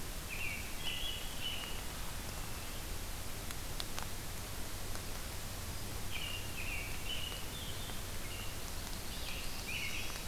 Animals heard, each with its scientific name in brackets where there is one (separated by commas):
American Robin (Turdus migratorius), Black-throated Blue Warbler (Setophaga caerulescens)